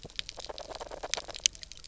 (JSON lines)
{"label": "biophony, knock croak", "recorder": "SoundTrap 300"}